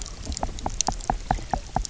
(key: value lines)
label: biophony, knock
recorder: SoundTrap 300